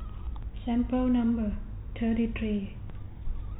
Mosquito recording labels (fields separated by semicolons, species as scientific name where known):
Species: no mosquito; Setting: cup